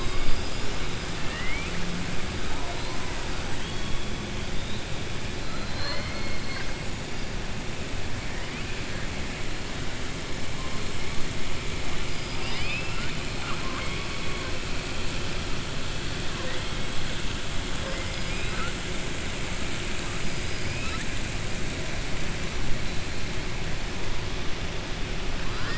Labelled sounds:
1.2	1.7	killer whale, southern resident, 1.2 to 3.6 kHz
12.1	14.1	killer whale, southern resident, 0.50 to 5.1 kHz
18.2	18.7	killer whale, southern resident, 0.50 to 2.6 kHz

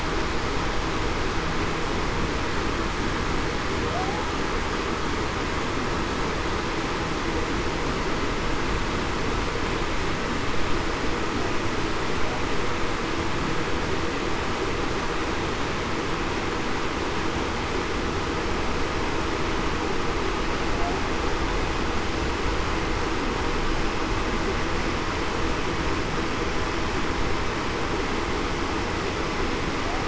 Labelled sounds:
3.9	4.3	humpback whale, 0.61 to 0.91 kHz

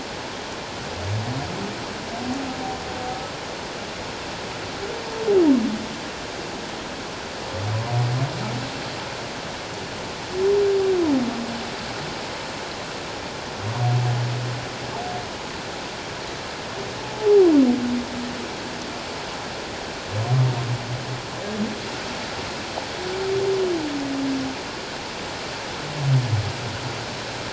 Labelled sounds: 17.2	17.5	humpback whale, 0.78 to 0.91 kHz

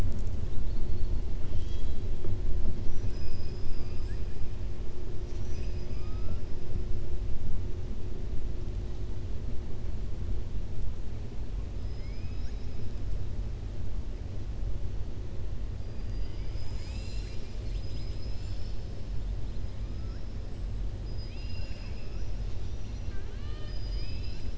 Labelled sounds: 1.4	2.0	killer whale, southern resident, 2.6 to 7.9 kHz
2.8	4.2	killer whale, southern resident, 1.2 to 7.9 kHz
5.4	6.4	killer whale, southern resident, 0.59 to 3.4 kHz
21.1	22.5	killer whale, southern resident, 0.94 to 6.9 kHz
23.0	24.5	killer whale, southern resident, 0.79 to 5.7 kHz

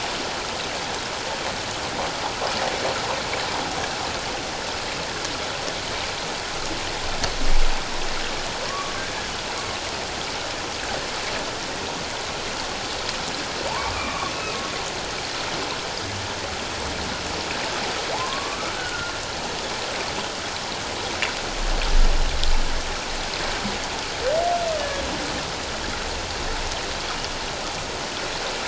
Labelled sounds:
8.7	9.0	humpback whale, 1.1 to 1.2 kHz
13.9	14.6	humpback whale, 1.1 to 2.6 kHz
18.1	19.1	humpback whale, 0.78 to 1.6 kHz
24.8	25.0	humpback whale, 1.6 to 1.8 kHz

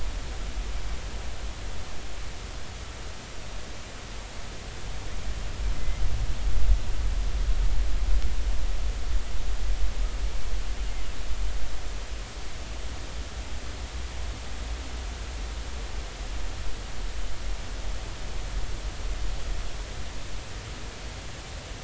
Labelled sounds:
5.7	6.0	humpback whale, 2.0 to 2.1 kHz

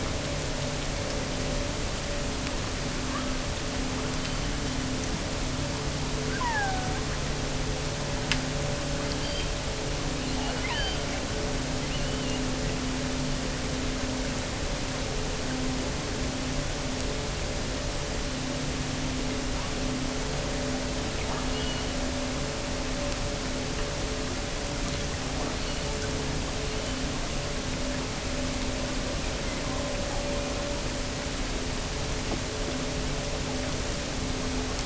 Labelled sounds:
4.1	4.9	killer whale, offshore, 2.9 to 4.8 kHz
6.2	7.1	killer whale, offshore, 0.66 to 2.2 kHz
9.0	9.6	killer whale, offshore, 2.8 to 5.0 kHz
10.2	12.5	killer whale, offshore, 0.48 to 4.9 kHz
21.4	22.0	killer whale, offshore, 2.5 to 4.5 kHz
25.4	26.0	killer whale, offshore, 2.4 to 4.7 kHz
26.4	27.2	killer whale, offshore, 2.4 to 4.8 kHz
29.1	30.1	killer whale, offshore, 0.86 to 2.8 kHz

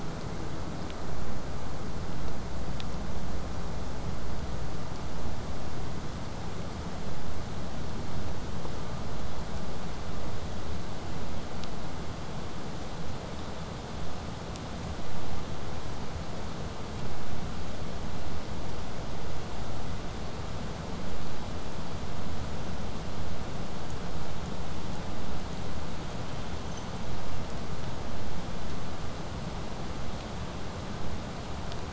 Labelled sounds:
23.9	26.8	killer whale, southern resident, 5.3 to 8.0 kHz

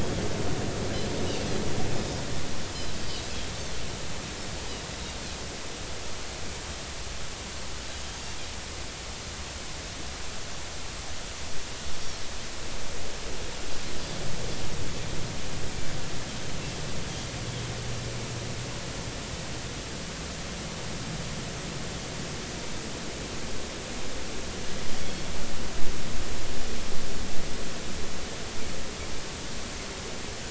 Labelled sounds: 2.0	2.2	Pacific white-sided dolphin, 4.9 to 5.2 kHz
24.9	25.2	Pacific white-sided dolphin, 3.2 to 3.5 kHz

